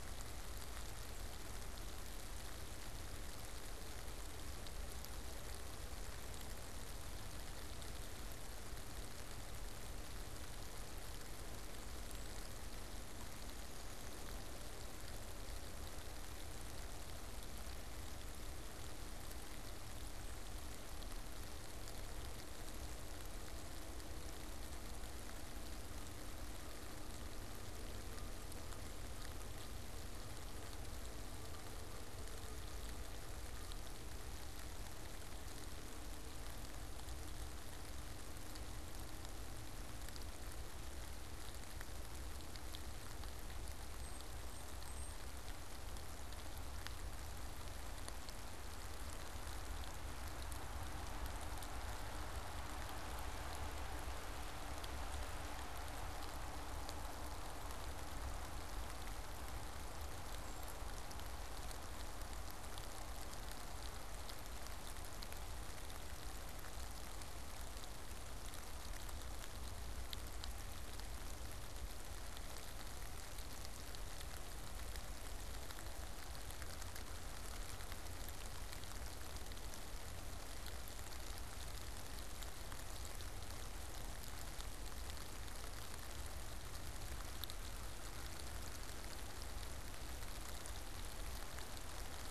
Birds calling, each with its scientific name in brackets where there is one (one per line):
unidentified bird